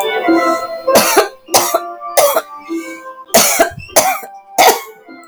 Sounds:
Cough